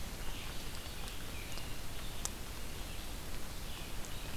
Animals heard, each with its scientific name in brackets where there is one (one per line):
Red-eyed Vireo (Vireo olivaceus)